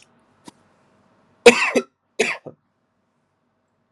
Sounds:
Cough